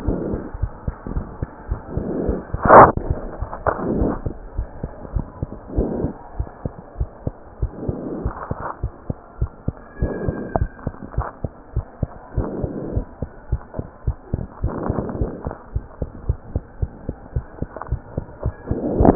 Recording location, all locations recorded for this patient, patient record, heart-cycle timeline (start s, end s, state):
mitral valve (MV)
aortic valve (AV)+pulmonary valve (PV)+tricuspid valve (TV)+mitral valve (MV)
#Age: Child
#Sex: Male
#Height: 106.0 cm
#Weight: 20.3 kg
#Pregnancy status: False
#Murmur: Absent
#Murmur locations: nan
#Most audible location: nan
#Systolic murmur timing: nan
#Systolic murmur shape: nan
#Systolic murmur grading: nan
#Systolic murmur pitch: nan
#Systolic murmur quality: nan
#Diastolic murmur timing: nan
#Diastolic murmur shape: nan
#Diastolic murmur grading: nan
#Diastolic murmur pitch: nan
#Diastolic murmur quality: nan
#Outcome: Normal
#Campaign: 2015 screening campaign
0.00	10.94	unannotated
10.94	11.14	diastole
11.14	11.28	S1
11.28	11.42	systole
11.42	11.52	S2
11.52	11.74	diastole
11.74	11.84	S1
11.84	11.98	systole
11.98	12.10	S2
12.10	12.36	diastole
12.36	12.50	S1
12.50	12.60	systole
12.60	12.72	S2
12.72	12.94	diastole
12.94	13.06	S1
13.06	13.20	systole
13.20	13.30	S2
13.30	13.50	diastole
13.50	13.62	S1
13.62	13.76	systole
13.76	13.86	S2
13.86	14.04	diastole
14.04	14.18	S1
14.18	14.30	systole
14.30	14.40	S2
14.40	14.62	diastole
14.62	14.74	S1
14.74	14.86	systole
14.86	14.98	S2
14.98	15.16	diastole
15.16	15.30	S1
15.30	15.44	systole
15.44	15.54	S2
15.54	15.72	diastole
15.72	15.86	S1
15.86	15.98	systole
15.98	16.08	S2
16.08	16.26	diastole
16.26	16.40	S1
16.40	16.50	systole
16.50	16.62	S2
16.62	16.80	diastole
16.80	16.94	S1
16.94	17.06	systole
17.06	17.16	S2
17.16	17.34	diastole
17.34	17.44	S1
17.44	17.60	systole
17.60	17.70	S2
17.70	17.90	diastole
17.90	18.00	S1
18.00	18.09	systole
18.09	19.15	unannotated